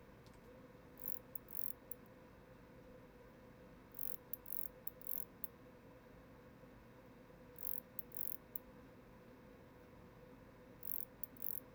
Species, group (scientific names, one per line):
Barbitistes ocskayi
Orthoptera